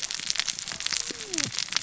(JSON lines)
{"label": "biophony, cascading saw", "recorder": "SoundTrap 600 or HydroMoth"}